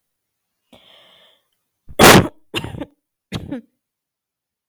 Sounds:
Cough